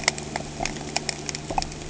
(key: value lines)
label: anthrophony, boat engine
recorder: HydroMoth